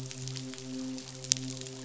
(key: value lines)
label: biophony, midshipman
recorder: SoundTrap 500